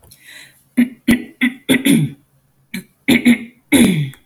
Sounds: Throat clearing